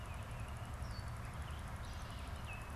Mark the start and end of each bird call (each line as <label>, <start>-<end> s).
Gray Catbird (Dumetella carolinensis), 0.0-2.8 s